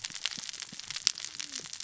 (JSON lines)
{"label": "biophony, cascading saw", "recorder": "SoundTrap 600 or HydroMoth"}